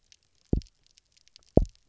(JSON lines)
{"label": "biophony, double pulse", "recorder": "SoundTrap 300"}